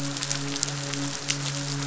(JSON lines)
{"label": "biophony, midshipman", "recorder": "SoundTrap 500"}